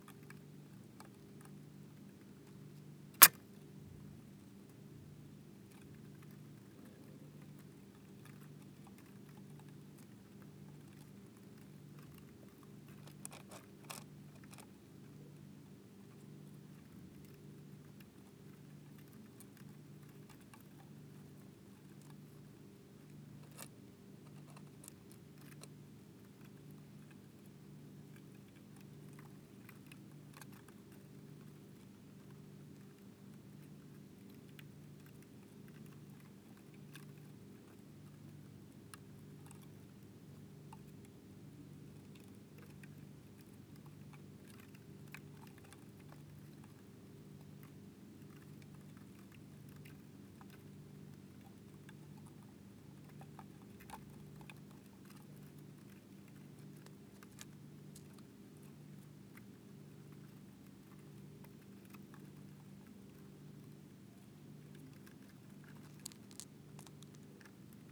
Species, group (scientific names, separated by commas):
Steropleurus brunnerii, Orthoptera